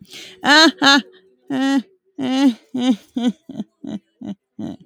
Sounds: Laughter